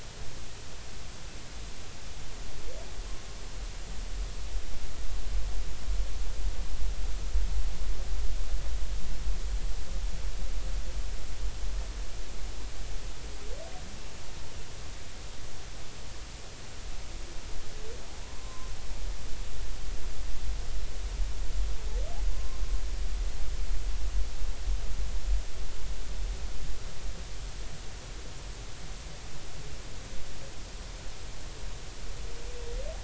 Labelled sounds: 18.4	18.7	humpback whale, 0.99 to 1.2 kHz
22.3	22.6	humpback whale, 0.96 to 1.1 kHz

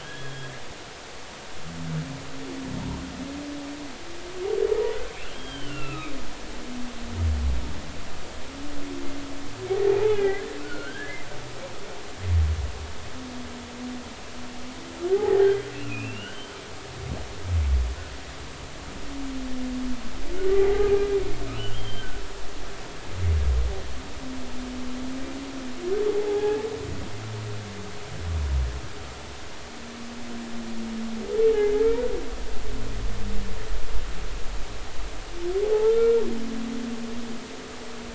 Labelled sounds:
0.0	0.5	humpback whale, 1.6 to 3.4 kHz
5.1	6.1	humpback whale, 1.2 to 3.3 kHz
9.8	11.2	humpback whale, 0.80 to 2.7 kHz
15.1	16.5	humpback whale, 0.80 to 3.2 kHz
20.5	20.9	humpback whale, 0.80 to 0.86 kHz
21.5	22.2	humpback whale, 1.4 to 3.3 kHz
26.1	26.6	humpback whale, 0.80 to 1.7 kHz
35.6	36.2	humpback whale, 0.80 to 1.4 kHz

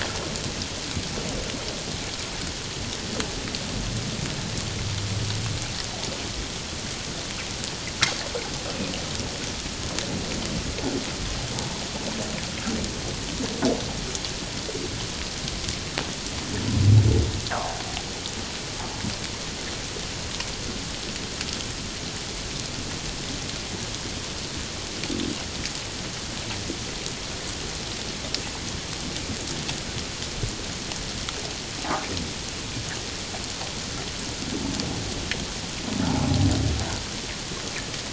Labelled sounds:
17.5	17.8	humpback whale, 0.78 to 1.8 kHz

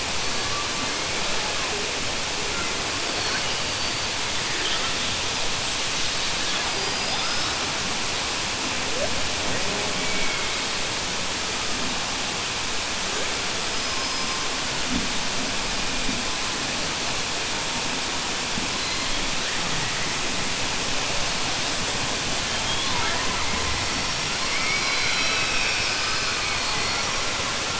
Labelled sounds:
24.4	26.6	killer whale, southern resident, 1.2 to 5.6 kHz

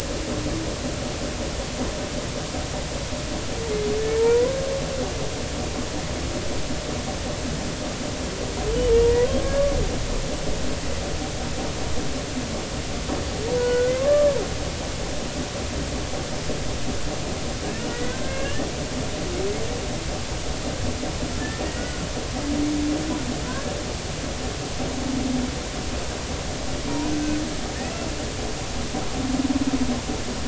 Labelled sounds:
4.2	4.6	humpback whale, 0.86 to 1.1 kHz
13.5	14.4	humpback whale, 0.93 to 1.5 kHz
17.9	18.7	humpback whale, 1.4 to 3.0 kHz
21.6	22.1	humpback whale, 1.3 to 2.0 kHz
27.8	28.1	humpback whale, 2.5 to 2.8 kHz

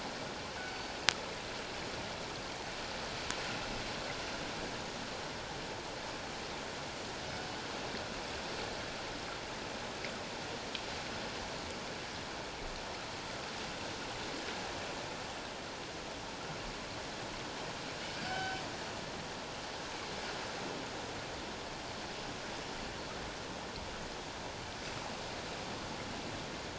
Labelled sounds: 0.7	0.9	killer whale, northern resident, G clan, 4.5 to 4.6 kHz
18.2	18.6	killer whale, northern resident, G clan, 0.78 to 3.1 kHz

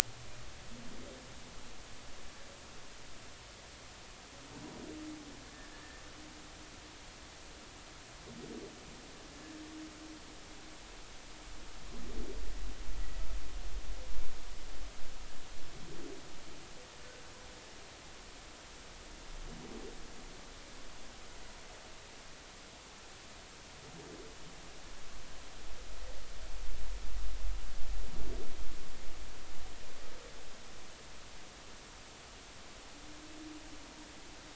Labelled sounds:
5.7	6.0	humpback whale, 1.7 to 1.8 kHz

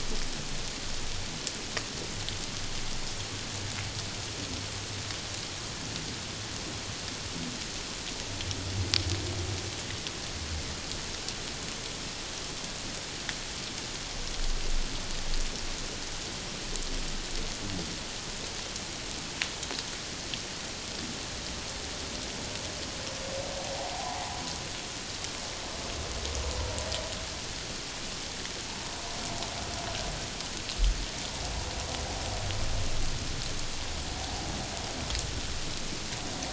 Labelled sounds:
23.7	24.4	humpback whale, 0.78 to 1.1 kHz

